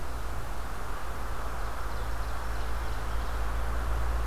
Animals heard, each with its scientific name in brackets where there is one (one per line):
Ovenbird (Seiurus aurocapilla)